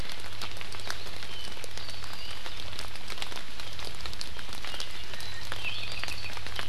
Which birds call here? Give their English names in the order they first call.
Apapane